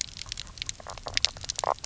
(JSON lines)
{"label": "biophony, knock croak", "recorder": "SoundTrap 300"}